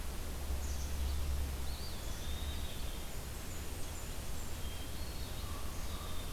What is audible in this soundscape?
Red-eyed Vireo, Eastern Wood-Pewee, Blackburnian Warbler, Hermit Thrush, Common Raven